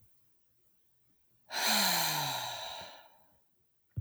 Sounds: Sigh